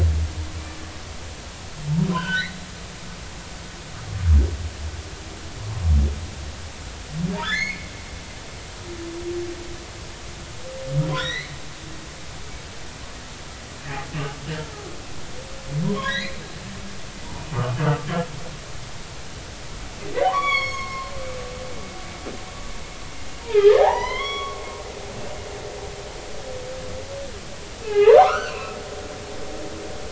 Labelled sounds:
2.1	2.6	humpback whale, 0.90 to 3.2 kHz
7.4	7.9	humpback whale, 1.2 to 4.4 kHz
11.2	11.5	humpback whale, 1.7 to 6.0 kHz
15.8	16.4	humpback whale, 0.90 to 4.3 kHz
20.2	21.1	humpback whale, 0.80 to 6.8 kHz
23.4	24.6	humpback whale, 0.80 to 6.2 kHz
27.8	28.7	humpback whale, 0.80 to 3.0 kHz

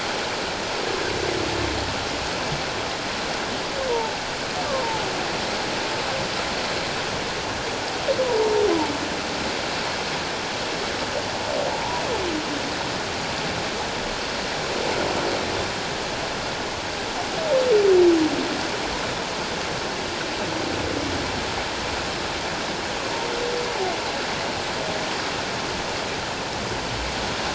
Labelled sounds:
3.9	4.2	humpback whale, 0.81 to 1.0 kHz
4.7	5.1	humpback whale, 0.78 to 1.2 kHz
8.2	8.6	humpback whale, 0.84 to 1.0 kHz

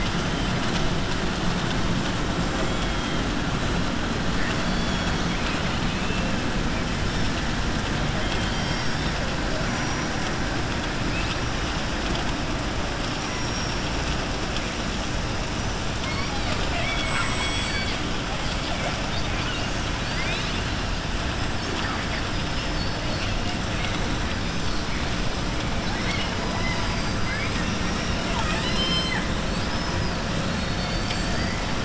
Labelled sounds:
5.2	6.3	killer whale, southern resident, 2.0 to 4.9 kHz
13.1	13.8	killer whale, southern resident, 5.3 to 6.0 kHz
15.9	18.0	killer whale, southern resident, 1.0 to 7.9 kHz
20.0	20.7	killer whale, southern resident, 1.6 to 4.9 kHz
26.5	31.6	killer whale, southern resident, 0.72 to 7.8 kHz

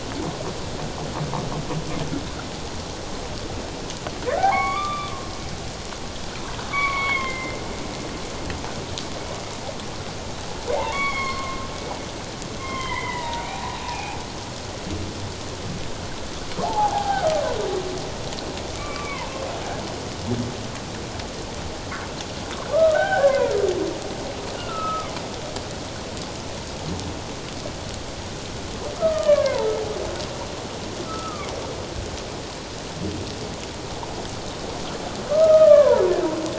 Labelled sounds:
4.4	5.1	humpback whale, 0.78 to 4.7 kHz
6.7	7.6	humpback whale, 0.91 to 4.6 kHz
10.7	11.6	humpback whale, 0.78 to 3.5 kHz
12.6	13.5	humpback whale, 0.81 to 3.2 kHz
13.8	14.2	humpback whale, 0.78 to 2.7 kHz
16.6	17.3	humpback whale, 0.78 to 1.7 kHz
18.8	19.3	humpback whale, 0.88 to 2.7 kHz
22.7	23.5	humpback whale, 0.78 to 2.2 kHz
24.6	25.1	humpback whale, 1.1 to 1.5 kHz
29.0	29.7	humpback whale, 0.84 to 3.1 kHz
31.0	31.5	humpback whale, 1.1 to 1.4 kHz
35.3	36.0	humpback whale, 0.88 to 1.9 kHz

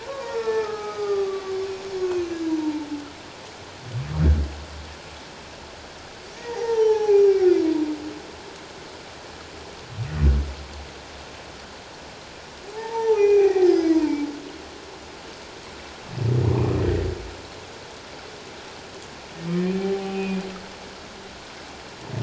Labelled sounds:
0.0	1.6	humpback whale, 0.78 to 5.6 kHz
2.0	2.9	humpback whale, 0.84 to 6.5 kHz
6.4	7.4	humpback whale, 0.78 to 6.1 kHz
12.7	14.3	humpback whale, 0.78 to 5.8 kHz
16.8	17.1	humpback whale, 1.4 to 1.9 kHz
19.5	20.4	humpback whale, 0.78 to 4.3 kHz

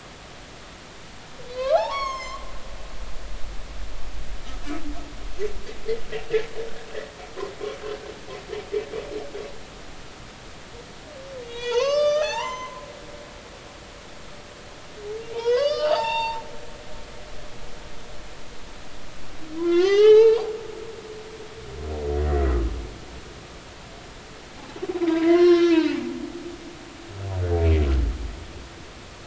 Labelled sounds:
1.6	2.4	humpback whale, 0.80 to 7.6 kHz
11.4	12.8	humpback whale, 0.80 to 6.5 kHz
15.2	16.4	humpback whale, 0.80 to 7.4 kHz
19.6	20.4	humpback whale, 0.80 to 6.2 kHz
22.2	22.6	humpback whale, 1.8 to 2.0 kHz
25.0	26.0	humpback whale, 0.80 to 5.7 kHz
27.5	27.8	humpback whale, 2.2 to 2.4 kHz

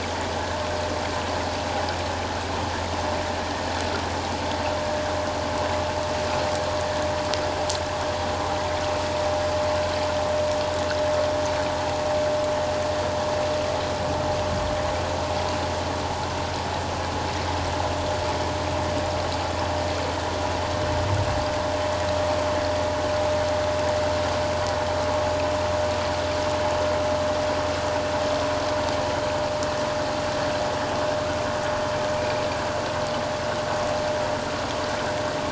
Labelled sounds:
32.2	32.4	vessel noise, 2.3 to 2.5 kHz

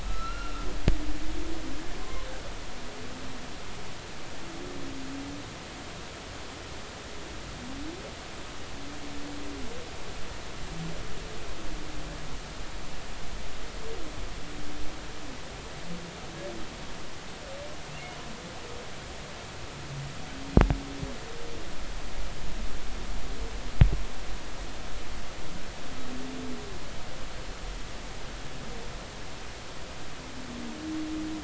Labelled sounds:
0.1	0.6	humpback whale, 1.2 to 4.2 kHz
2.0	2.3	humpback whale, 0.99 to 1.1 kHz

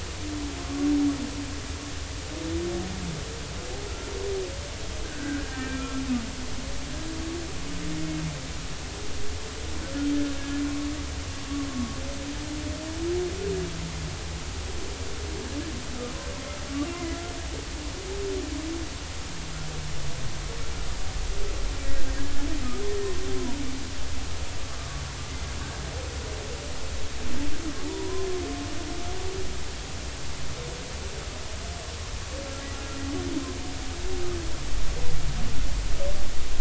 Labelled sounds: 5.0	6.0	humpback whale, 1.3 to 2.5 kHz
16.9	17.2	humpback whale, 2.0 to 2.1 kHz
22.2	22.5	humpback whale, 1.6 to 1.8 kHz
24.8	25.0	humpback whale, 1.1 to 1.2 kHz
27.9	28.3	humpback whale, 0.86 to 1.1 kHz
32.7	33.0	humpback whale, 1.3 to 1.5 kHz

